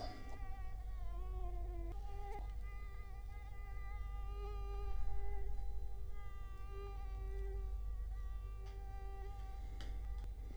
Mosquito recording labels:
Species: Culex quinquefasciatus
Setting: cup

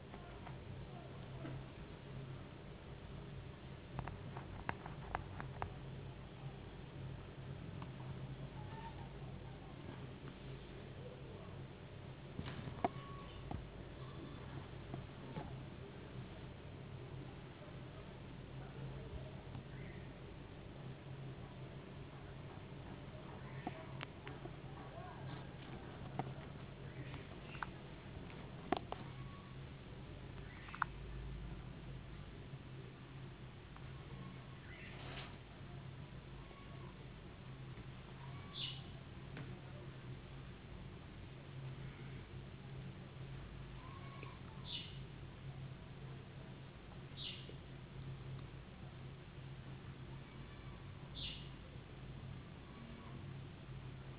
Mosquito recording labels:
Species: no mosquito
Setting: insect culture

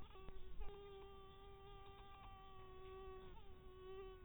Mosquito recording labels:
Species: Anopheles barbirostris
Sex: female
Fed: blood-fed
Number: one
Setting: cup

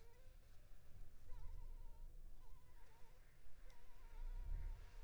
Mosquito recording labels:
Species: Anopheles funestus s.s.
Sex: female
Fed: unfed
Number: one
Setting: cup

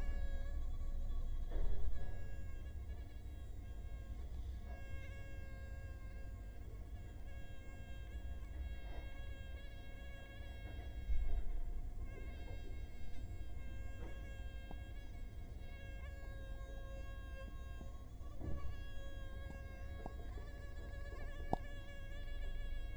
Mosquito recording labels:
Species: Culex quinquefasciatus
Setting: cup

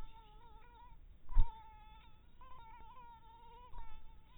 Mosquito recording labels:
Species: mosquito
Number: one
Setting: cup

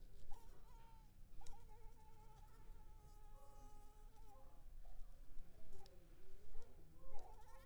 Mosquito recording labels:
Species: Anopheles arabiensis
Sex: female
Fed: unfed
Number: one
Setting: cup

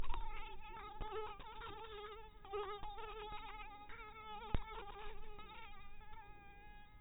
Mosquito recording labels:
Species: mosquito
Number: one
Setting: cup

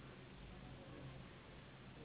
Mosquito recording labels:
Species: Anopheles gambiae s.s.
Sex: female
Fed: unfed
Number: one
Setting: insect culture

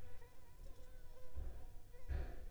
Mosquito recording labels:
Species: Anopheles arabiensis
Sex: female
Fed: unfed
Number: one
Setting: cup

